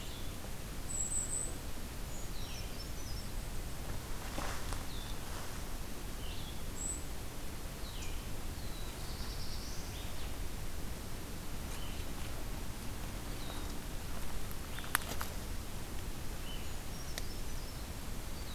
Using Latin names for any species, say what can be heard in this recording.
Vireo solitarius, Regulus satrapa, Certhia americana, Setophaga caerulescens